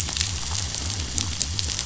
{"label": "biophony", "recorder": "SoundTrap 500"}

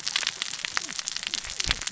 {"label": "biophony, cascading saw", "recorder": "SoundTrap 600 or HydroMoth"}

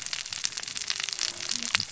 {"label": "biophony, cascading saw", "recorder": "SoundTrap 600 or HydroMoth"}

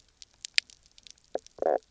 {"label": "biophony, knock croak", "recorder": "SoundTrap 300"}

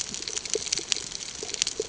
{"label": "ambient", "recorder": "HydroMoth"}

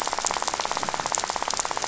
{"label": "biophony, rattle", "recorder": "SoundTrap 500"}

